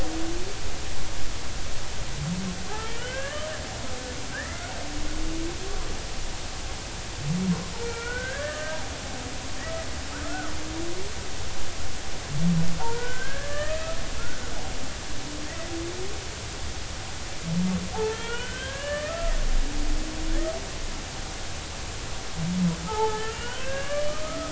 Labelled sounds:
2.7	3.5	humpback whale, 1.0 to 3.3 kHz
4.3	4.6	humpback whale, 1.5 to 2.1 kHz
7.8	8.8	humpback whale, 1.2 to 2.4 kHz
9.6	10.5	humpback whale, 1.2 to 2.0 kHz
12.8	14.0	humpback whale, 0.80 to 2.7 kHz
18.0	19.3	humpback whale, 1.0 to 3.4 kHz
20.3	20.5	humpback whale, 1.4 to 2.0 kHz
22.8	24.5	humpback whale, 0.80 to 3.2 kHz

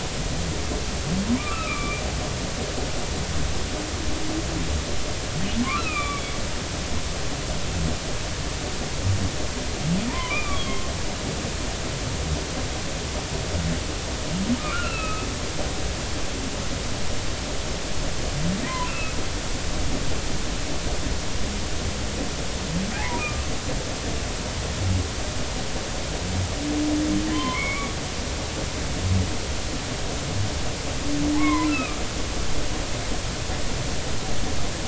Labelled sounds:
1.4	2.0	humpback whale, 1.1 to 2.8 kHz
5.6	6.3	humpback whale, 0.99 to 2.8 kHz
10.1	10.9	humpback whale, 0.86 to 3.4 kHz
14.6	15.3	humpback whale, 1.1 to 2.9 kHz
18.7	19.2	humpback whale, 0.93 to 2.8 kHz
23.2	23.5	humpback whale, 1.0 to 1.3 kHz
27.3	27.9	humpback whale, 0.96 to 3.2 kHz
31.3	32.0	humpback whale, 0.80 to 2.7 kHz

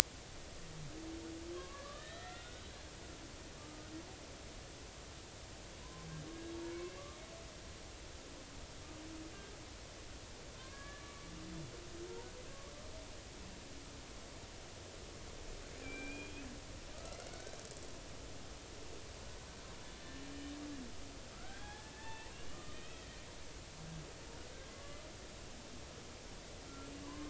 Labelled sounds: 1.5	2.7	killer whale, Bigg's (transient), 1.0 to 4.0 kHz
3.5	3.9	killer whale, Bigg's (transient), 1.1 to 1.3 kHz
5.8	6.1	killer whale, Bigg's (transient), 0.93 to 1.1 kHz
10.5	11.2	killer whale, Bigg's (transient), 0.99 to 1.8 kHz
15.8	16.4	killer whale, Bigg's (transient), 1.5 to 3.3 kHz
17.3	17.6	killer whale, Bigg's (transient), 1.4 to 1.6 kHz
21.3	23.1	killer whale, Bigg's (transient), 0.83 to 3.5 kHz
24.7	25.1	killer whale, Bigg's (transient), 1.1 to 1.2 kHz
26.7	27.2	killer whale, Bigg's (transient), 0.93 to 1.4 kHz

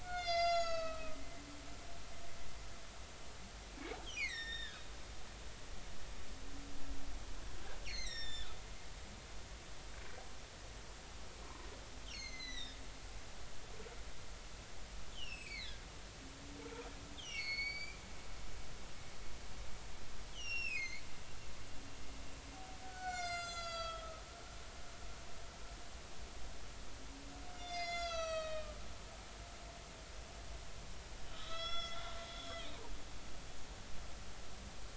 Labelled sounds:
0.0	1.2	humpback whale, 1.2 to 6.9 kHz
4.0	4.8	humpback whale, 1.4 to 6.0 kHz
7.8	8.5	humpback whale, 1.7 to 5.9 kHz
11.4	12.8	humpback whale, 0.90 to 6.7 kHz
15.1	15.8	humpback whale, 1.9 to 8.0 kHz
17.2	18.0	humpback whale, 2.0 to 7.1 kHz
20.3	21.0	humpback whale, 2.0 to 6.2 kHz
22.8	24.2	humpback whale, 1.2 to 7.7 kHz
27.5	28.8	humpback whale, 1.2 to 7.9 kHz
31.3	32.1	humpback whale, 1.2 to 6.2 kHz
32.4	32.7	humpback whale, 3.0 to 3.4 kHz

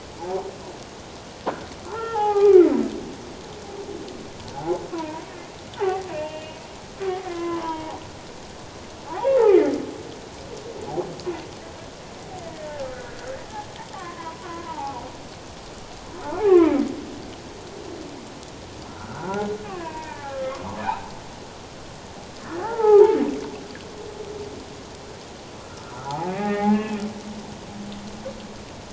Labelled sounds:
1.8	2.7	humpback whale, 0.78 to 2.5 kHz
4.5	5.2	humpback whale, 0.78 to 1.1 kHz
5.8	6.6	humpback whale, 0.78 to 2.9 kHz
7.3	8.0	humpback whale, 0.78 to 2.1 kHz
9.2	9.4	humpback whale, 0.78 to 1.1 kHz
12.6	13.0	humpback whale, 1.2 to 1.5 kHz
14.0	15.0	humpback whale, 0.78 to 1.3 kHz
16.4	16.8	humpback whale, 0.84 to 1.3 kHz
18.9	20.6	humpback whale, 0.84 to 2.7 kHz
20.9	21.1	humpback whale, 0.78 to 1.0 kHz
22.4	23.2	humpback whale, 0.78 to 1.9 kHz
26.0	27.0	humpback whale, 0.78 to 2.6 kHz

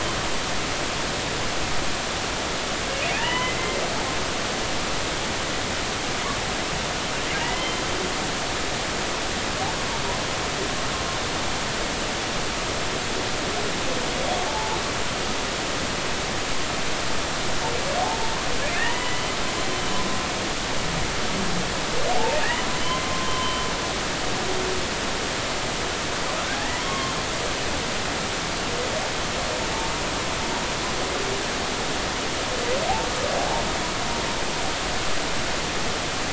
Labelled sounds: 3.1	3.8	humpback whale, 0.86 to 3.1 kHz
7.4	7.8	humpback whale, 1.9 to 3.2 kHz
14.5	14.8	humpback whale, 0.80 to 0.99 kHz
18.7	19.4	humpback whale, 0.90 to 3.1 kHz
22.1	22.4	humpback whale, 0.80 to 0.96 kHz
23.1	23.7	humpback whale, 0.96 to 3.1 kHz
26.5	27.1	humpback whale, 1.0 to 2.2 kHz

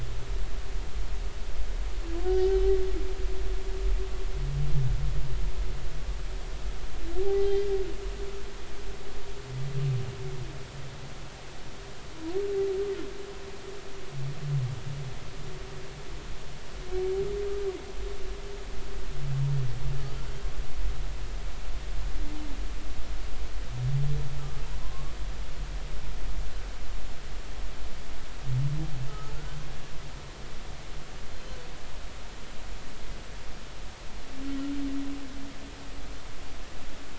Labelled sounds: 7.2	7.6	humpback whale, 0.80 to 0.83 kHz
24.8	25.1	humpback whale, 0.96 to 1.2 kHz
29.1	29.3	humpback whale, 1.2 to 1.3 kHz

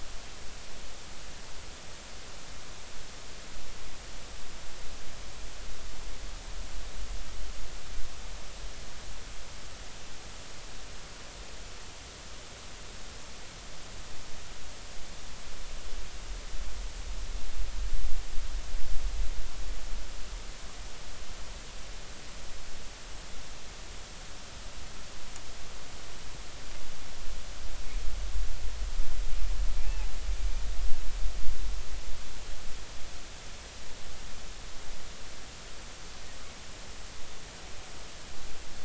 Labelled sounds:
29.8	30.1	humpback whale, 0.80 to 0.93 kHz

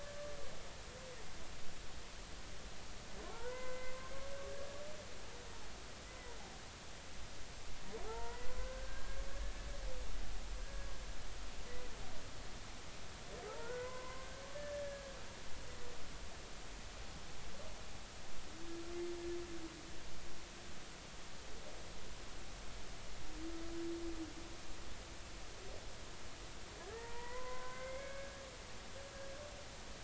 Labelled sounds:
3.3	4.0	humpback whale, 0.80 to 2.1 kHz
4.5	4.8	humpback whale, 1.6 to 1.7 kHz
8.0	9.5	humpback whale, 0.80 to 2.0 kHz
10.6	10.9	humpback whale, 1.6 to 1.7 kHz
13.6	15.2	humpback whale, 0.96 to 2.1 kHz
26.9	28.3	humpback whale, 0.86 to 2.3 kHz

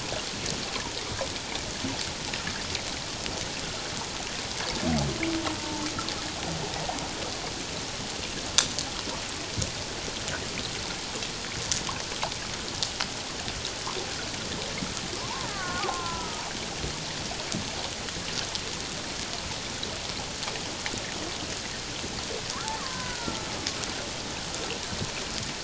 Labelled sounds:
5.5	5.9	killer whale, Bigg's (transient), 0.84 to 1.1 kHz
15.5	16.4	killer whale, Bigg's (transient), 0.78 to 1.8 kHz
22.8	23.5	killer whale, Bigg's (transient), 0.94 to 1.6 kHz

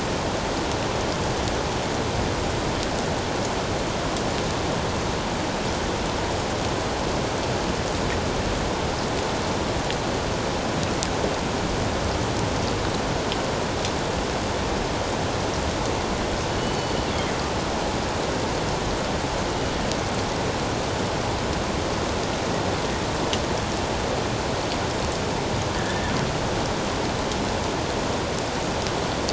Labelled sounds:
16.5	17.0	killer whale, northern resident, G clan, 2.9 to 4.6 kHz
19.5	19.7	killer whale, northern resident, G clan, 2.8 to 3.0 kHz
25.8	26.1	killer whale, northern resident, G clan, 1.7 to 1.9 kHz

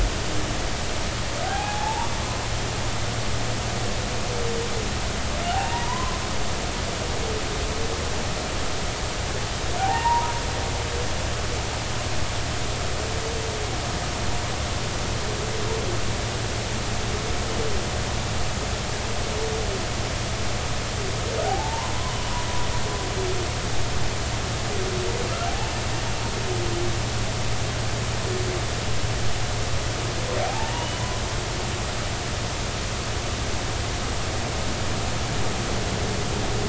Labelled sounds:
1.4	2.1	humpback whale, 0.80 to 0.99 kHz
5.5	6.2	humpback whale, 0.80 to 1.1 kHz
9.8	10.3	humpback whale, 0.80 to 1.9 kHz
21.4	21.9	humpback whale, 0.80 to 1.1 kHz
25.5	25.7	humpback whale, 0.80 to 0.93 kHz
30.4	31.0	humpback whale, 0.80 to 3.0 kHz

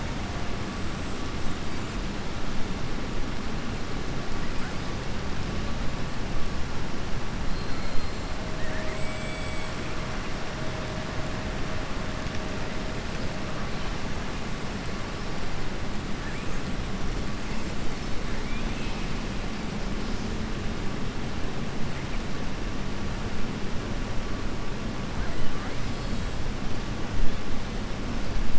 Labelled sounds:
8.5	9.7	killer whale, southern resident, 1.3 to 3.5 kHz
18.4	19.1	killer whale, southern resident, 2.2 to 4.1 kHz

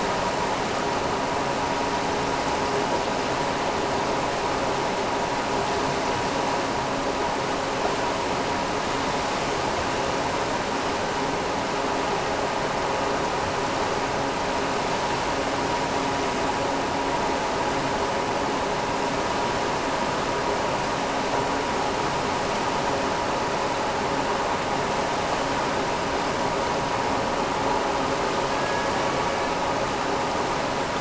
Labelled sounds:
28.4	29.6	killer whale, Bigg's (transient), AT1 transient, 1.0 to 2.4 kHz

